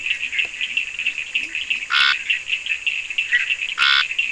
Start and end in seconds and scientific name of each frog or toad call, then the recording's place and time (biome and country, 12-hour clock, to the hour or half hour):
0.0	2.4	Leptodactylus latrans
1.8	2.4	Scinax perereca
3.0	3.6	Boana bischoffi
3.6	4.3	Scinax perereca
Atlantic Forest, Brazil, 3:30am